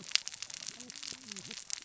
{"label": "biophony, cascading saw", "recorder": "SoundTrap 600 or HydroMoth"}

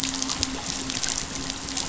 {"label": "anthrophony, boat engine", "recorder": "SoundTrap 500"}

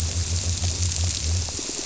{"label": "biophony", "recorder": "SoundTrap 300"}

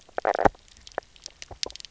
{"label": "biophony, knock croak", "recorder": "SoundTrap 300"}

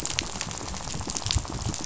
{"label": "biophony, rattle", "recorder": "SoundTrap 500"}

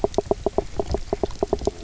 {"label": "biophony, knock croak", "recorder": "SoundTrap 300"}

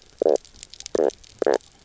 {"label": "biophony, knock croak", "recorder": "SoundTrap 300"}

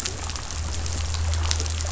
{"label": "anthrophony, boat engine", "recorder": "SoundTrap 500"}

